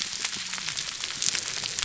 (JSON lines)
{"label": "biophony, whup", "recorder": "SoundTrap 300"}